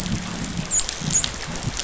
{"label": "biophony, dolphin", "recorder": "SoundTrap 500"}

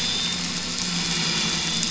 {"label": "anthrophony, boat engine", "recorder": "SoundTrap 500"}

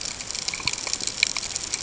{"label": "ambient", "recorder": "HydroMoth"}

